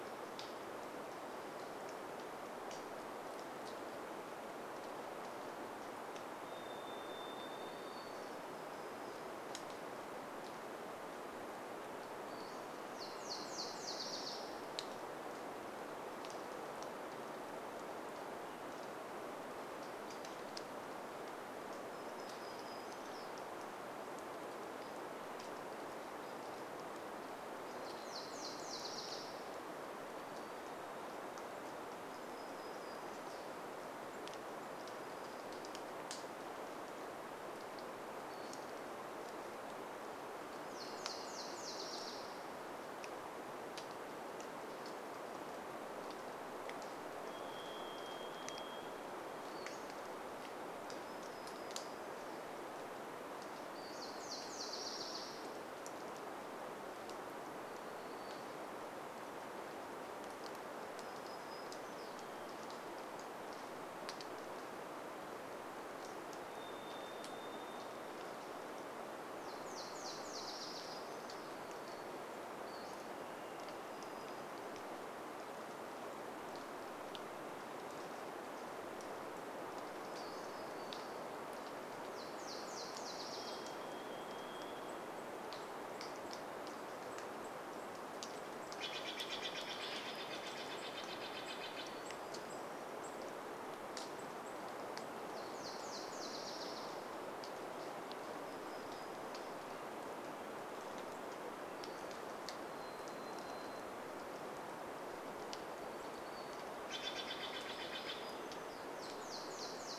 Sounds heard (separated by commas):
Pacific-slope Flycatcher call, Varied Thrush song, rain, warbler song, Nashville Warbler song, unidentified bird chip note, Steller's Jay call